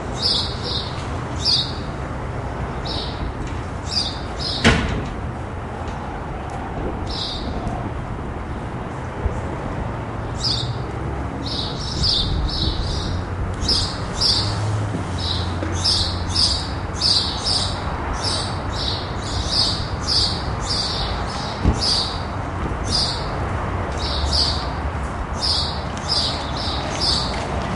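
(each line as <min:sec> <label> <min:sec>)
0:00.0 Cars driving in the distance. 0:27.8
0:00.1 Loud birds chirping repeatedly outdoors. 0:01.7
0:02.8 Loud birds chirping repeatedly outdoors. 0:05.0
0:04.6 A loud metallic sound. 0:05.1
0:07.0 Birds chirping outdoors. 0:07.7
0:10.4 Multiple birds chirp outdoors. 0:27.5
0:21.6 A car door shuts. 0:21.8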